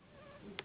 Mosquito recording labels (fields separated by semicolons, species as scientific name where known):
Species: Anopheles gambiae s.s.; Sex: female; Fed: unfed; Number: one; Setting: insect culture